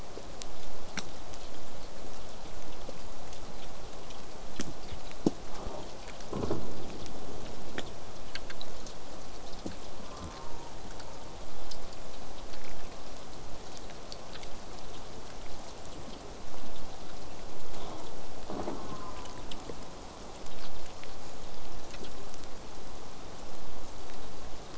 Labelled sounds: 10.1	10.7	killer whale, southern resident, J pod, call S04, 0.61 to 1.3 kHz
18.7	19.5	killer whale, southern resident, J pod, call S04, 0.53 to 1.6 kHz

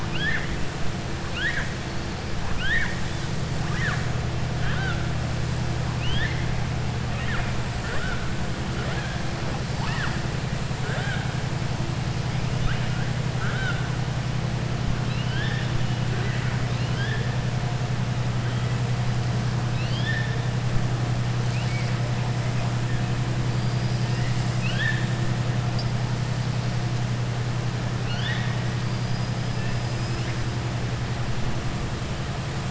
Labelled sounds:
0.0	0.5	killer whale, southern resident, 1.5 to 4.1 kHz
1.2	1.7	killer whale, southern resident, 1.1 to 4.4 kHz
2.4	3.0	killer whale, southern resident, 1.0 to 3.8 kHz
5.9	6.4	killer whale, southern resident, 1.7 to 4.2 kHz
7.1	7.5	killer whale, southern resident, 0.71 to 3.2 kHz
13.3	13.8	killer whale, southern resident, 1.2 to 3.9 kHz
15.0	15.7	killer whale, southern resident, 1.5 to 4.6 kHz
16.6	17.2	killer whale, southern resident, 1.6 to 5.3 kHz
19.6	20.4	killer whale, southern resident, 1.7 to 5.3 kHz
24.5	25.1	killer whale, southern resident, 1.5 to 5.7 kHz
28.0	28.6	killer whale, southern resident, 1.1 to 4.9 kHz
28.8	29.3	killer whale, southern resident, 4.7 to 5.0 kHz
29.7	30.3	killer whale, southern resident, 4.5 to 5.9 kHz

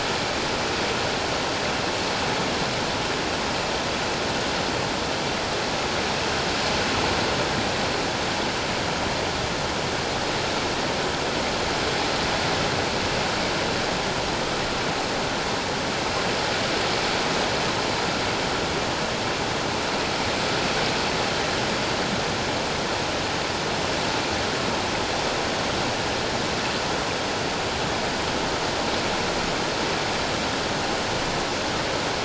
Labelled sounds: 1.1	1.4	vessel noise, 1.0 to 1.1 kHz

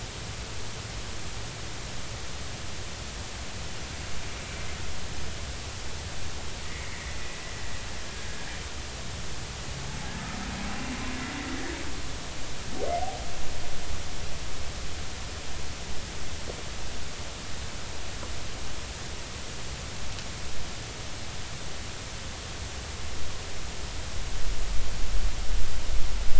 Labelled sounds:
6.6	7.2	humpback whale, 1.8 to 2.3 kHz

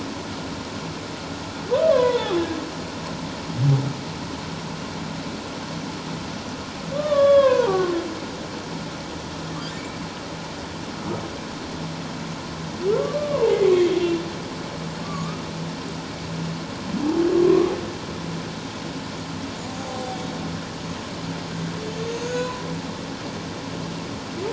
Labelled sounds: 1.7	2.5	humpback whale, 0.78 to 3.6 kHz
6.9	7.9	humpback whale, 0.88 to 3.7 kHz
13.0	13.6	humpback whale, 0.78 to 1.2 kHz
15.0	15.4	humpback whale, 1.0 to 1.3 kHz
19.7	20.2	humpback whale, 0.78 to 0.84 kHz
22.1	22.7	humpback whale, 0.94 to 7.1 kHz

